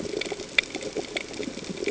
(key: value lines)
label: ambient
recorder: HydroMoth